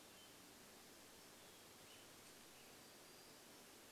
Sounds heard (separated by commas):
Western Tanager song, Hermit Thrush song